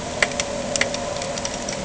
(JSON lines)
{"label": "anthrophony, boat engine", "recorder": "HydroMoth"}